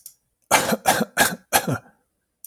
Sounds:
Cough